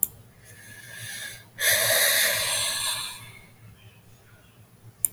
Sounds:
Sigh